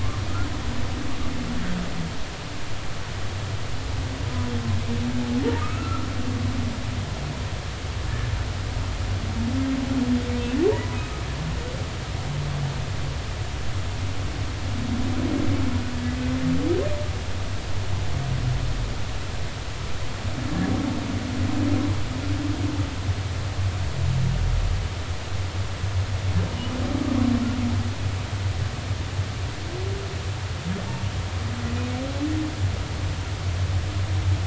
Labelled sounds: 5.6	6.1	humpback whale, 1.2 to 2.7 kHz
11.0	11.2	humpback whale, 1.2 to 1.3 kHz

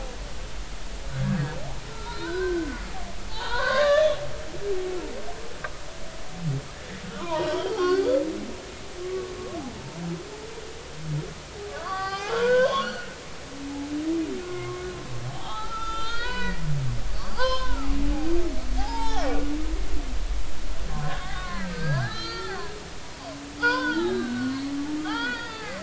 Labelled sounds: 1.1	2.8	humpback whale, 0.90 to 4.3 kHz
3.3	4.2	humpback whale, 0.83 to 4.8 kHz
7.1	8.1	humpback whale, 0.86 to 5.5 kHz
9.0	9.3	humpback whale, 1.1 to 1.2 kHz
11.8	13.1	humpback whale, 0.80 to 5.4 kHz
14.4	14.8	humpback whale, 0.99 to 2.2 kHz
15.3	19.3	humpback whale, 0.80 to 5.5 kHz
20.9	22.7	humpback whale, 0.93 to 4.8 kHz
23.6	25.8	humpback whale, 0.80 to 5.2 kHz

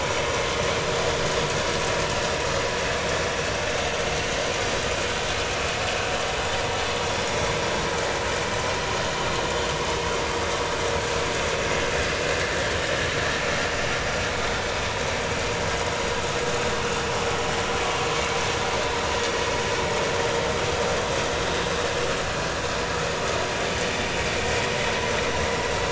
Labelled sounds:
14.4	14.6	vessel noise, 3.5 to 3.7 kHz

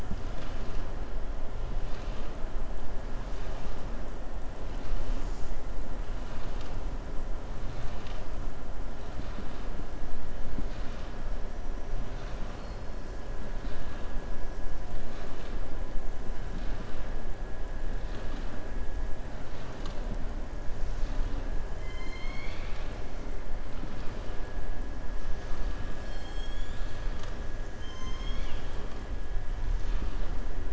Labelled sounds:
21.7	23.0	killer whale, southern resident, 1.2 to 7.1 kHz
27.7	28.7	killer whale, southern resident, 1.1 to 6.6 kHz

